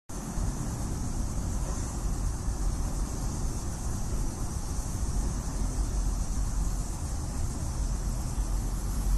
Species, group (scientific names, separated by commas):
Neotibicen linnei, Cicadidae